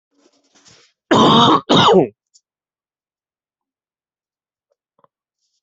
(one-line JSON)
{"expert_labels": [{"quality": "good", "cough_type": "dry", "dyspnea": false, "wheezing": false, "stridor": false, "choking": false, "congestion": true, "nothing": false, "diagnosis": "upper respiratory tract infection", "severity": "mild"}], "age": 25, "gender": "male", "respiratory_condition": true, "fever_muscle_pain": false, "status": "COVID-19"}